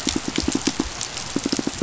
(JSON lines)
{"label": "biophony, pulse", "recorder": "SoundTrap 500"}